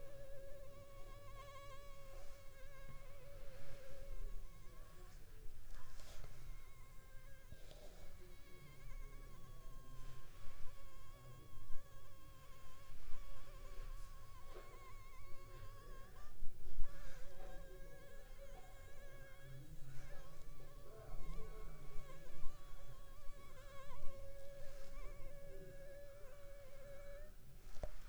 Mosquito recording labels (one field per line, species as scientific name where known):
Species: Anopheles funestus s.s.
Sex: female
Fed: unfed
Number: one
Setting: cup